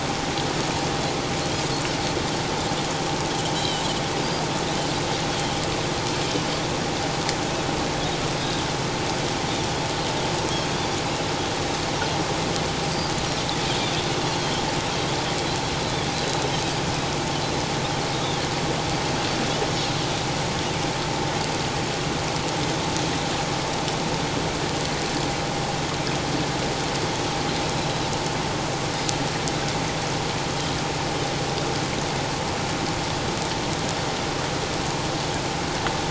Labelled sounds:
3.6	3.9	Pacific white-sided dolphin, 2.9 to 4.1 kHz
5.3	5.6	Pacific white-sided dolphin, 3.0 to 3.4 kHz
16.1	16.4	Pacific white-sided dolphin, 3.9 to 4.1 kHz
18.1	18.5	Pacific white-sided dolphin, 3.1 to 3.8 kHz

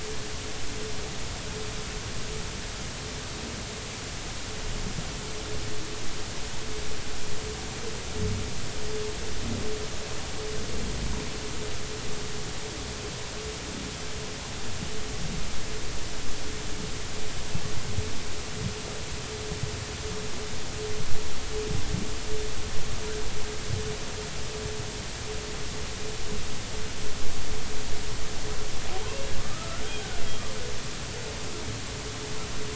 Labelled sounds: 29.4	29.8	humpback whale, 1.2 to 1.5 kHz

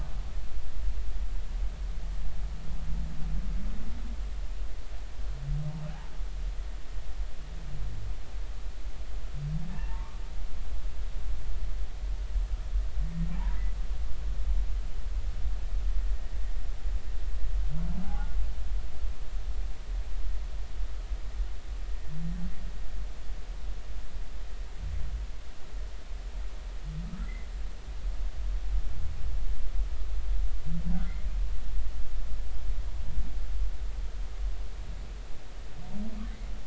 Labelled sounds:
9.7	10.2	humpback whale, 0.86 to 2.9 kHz
13.3	13.6	humpback whale, 1.5 to 1.8 kHz
18.0	18.3	humpback whale, 0.80 to 0.93 kHz
30.9	31.2	humpback whale, 1.3 to 1.6 kHz

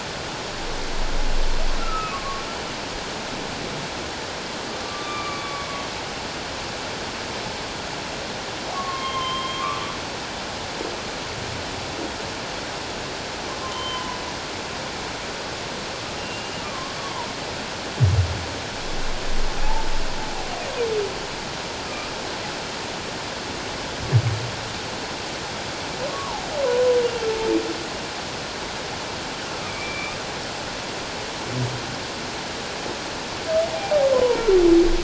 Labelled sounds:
1.8	2.4	humpback whale, 1.0 to 1.4 kHz
4.8	5.7	humpback whale, 1.1 to 2.5 kHz
8.7	10.0	humpback whale, 1.0 to 3.3 kHz
13.7	14.2	humpback whale, 0.88 to 3.2 kHz
16.2	17.3	humpback whale, 0.84 to 2.8 kHz
19.6	19.9	humpback whale, 0.81 to 1.0 kHz
26.1	26.5	humpback whale, 0.78 to 1.2 kHz
29.7	30.2	humpback whale, 2.2 to 2.5 kHz
34.1	34.4	humpback whale, 0.88 to 1.1 kHz

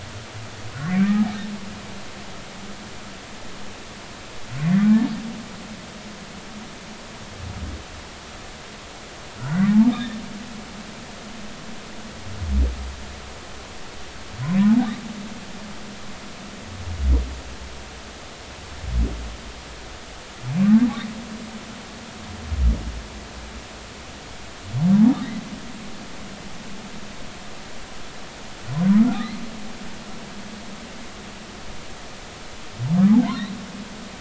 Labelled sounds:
0.9	1.3	humpback whale, 1.1 to 2.5 kHz
4.6	4.9	humpback whale, 1.7 to 2.1 kHz
9.4	10.2	humpback whale, 1.3 to 3.8 kHz
29.1	29.4	humpback whale, 3.5 to 4.3 kHz
33.1	33.4	humpback whale, 0.80 to 1.2 kHz

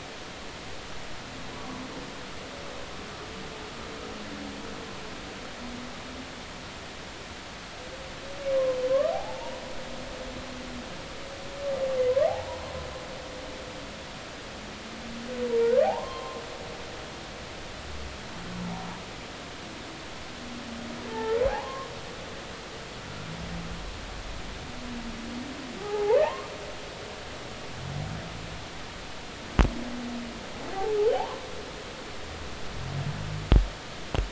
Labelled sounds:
1.6	1.8	humpback whale, 0.96 to 1.2 kHz
8.9	9.6	humpback whale, 0.80 to 1.3 kHz
15.8	16.4	humpback whale, 0.80 to 1.1 kHz
21.1	21.9	humpback whale, 0.80 to 1.9 kHz
25.8	26.5	humpback whale, 0.80 to 1.2 kHz
31.1	31.4	humpback whale, 0.80 to 1.2 kHz

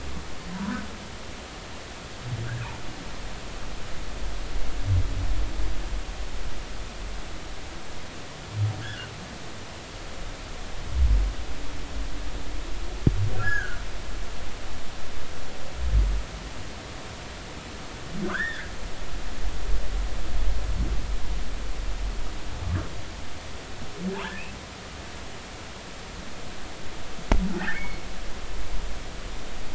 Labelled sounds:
0.5	0.8	humpback whale, 0.90 to 1.1 kHz
8.8	9.1	humpback whale, 1.3 to 1.8 kHz
13.4	13.8	humpback whale, 1.3 to 1.8 kHz
18.2	18.7	humpback whale, 0.99 to 3.8 kHz
27.6	28.0	humpback whale, 1.3 to 2.3 kHz

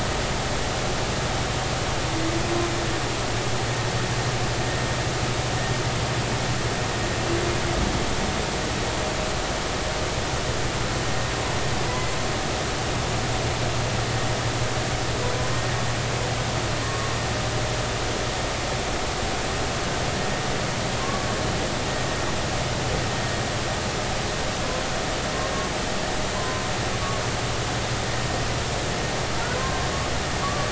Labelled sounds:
11.9	12.1	humpback whale, 2.0 to 2.1 kHz
16.8	17.1	humpback whale, 1.0 to 1.2 kHz
21.0	21.3	humpback whale, 1.0 to 1.2 kHz
26.3	26.7	humpback whale, 0.96 to 1.1 kHz
29.6	30.7	humpback whale, 0.99 to 1.2 kHz

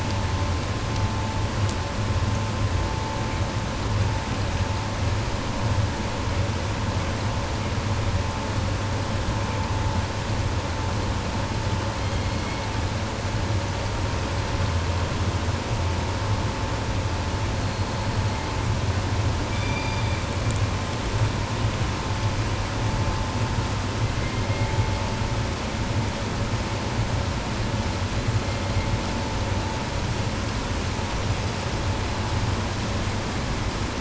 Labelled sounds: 11.7	13.2	killer whale, 0.80 to 4.5 kHz
17.4	18.7	killer whale, 1.5 to 4.6 kHz
19.4	20.4	killer whale, southern resident, 1.6 to 6.5 kHz
24.0	25.4	killer whale, 1.2 to 4.6 kHz
28.2	29.2	killer whale, 1.5 to 4.4 kHz

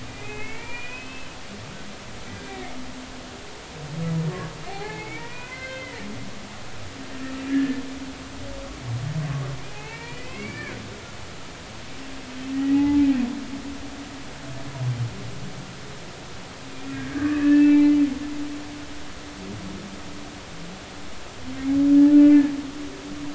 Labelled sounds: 0.1	1.3	humpback whale, 2.0 to 3.0 kHz
2.4	2.7	humpback whale, 2.0 to 2.4 kHz
4.7	6.1	humpback whale, 0.80 to 4.6 kHz
7.5	7.8	humpback whale, 1.6 to 1.9 kHz
9.3	10.8	humpback whale, 0.80 to 4.8 kHz
12.5	13.1	humpback whale, 0.80 to 2.1 kHz
16.9	18.0	humpback whale, 1.5 to 2.7 kHz
21.5	22.5	humpback whale, 1.7 to 2.7 kHz

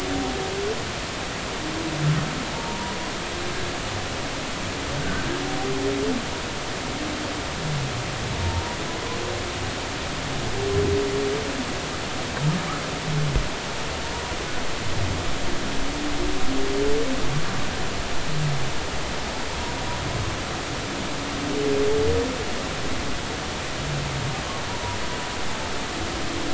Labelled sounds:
2.5	3.0	humpback whale, 0.83 to 1.0 kHz
8.4	8.8	humpback whale, 0.86 to 0.99 kHz
24.7	25.0	humpback whale, 0.90 to 1.1 kHz

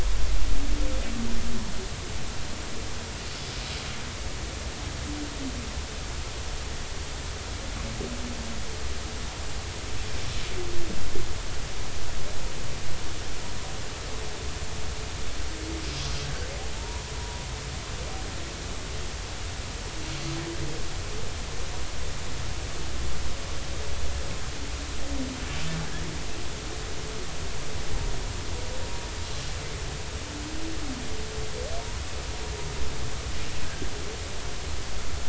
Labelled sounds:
16.8	17.4	humpback whale, 0.86 to 1.0 kHz
33.7	33.9	humpback whale, 1.5 to 1.7 kHz

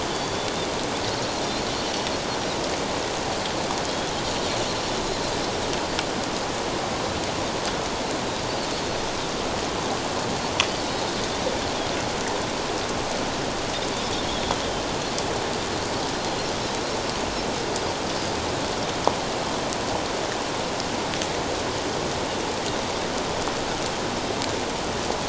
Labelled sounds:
3.9	4.1	Pacific white-sided dolphin, 3.2 to 3.5 kHz
8.7	9.0	Pacific white-sided dolphin, 4.2 to 4.4 kHz

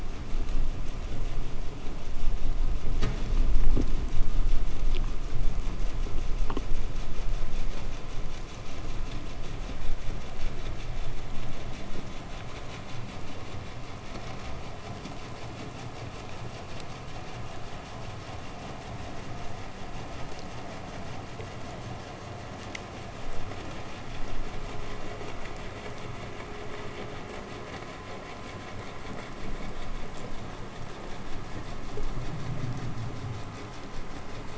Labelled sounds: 14.6	22.2	vessel noise, 0 to 8.0 kHz

